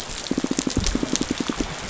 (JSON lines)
{"label": "biophony, pulse", "recorder": "SoundTrap 500"}